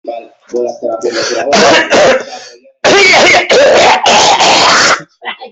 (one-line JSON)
{"expert_labels": [{"quality": "poor", "cough_type": "unknown", "dyspnea": false, "wheezing": false, "stridor": false, "choking": false, "congestion": false, "nothing": true, "diagnosis": "COVID-19", "severity": "severe"}], "age": 45, "gender": "male", "respiratory_condition": false, "fever_muscle_pain": false, "status": "healthy"}